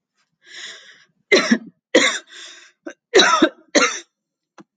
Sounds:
Cough